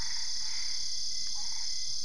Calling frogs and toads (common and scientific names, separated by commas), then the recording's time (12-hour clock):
Boana albopunctata
3:30am